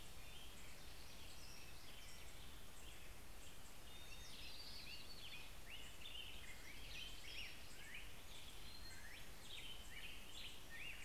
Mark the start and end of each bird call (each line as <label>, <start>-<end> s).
American Robin (Turdus migratorius), 0.0-11.0 s